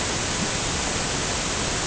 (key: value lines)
label: ambient
recorder: HydroMoth